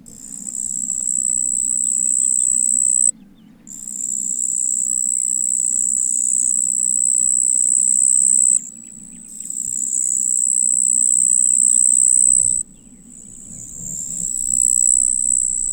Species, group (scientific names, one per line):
Pteronemobius heydenii
Orthoptera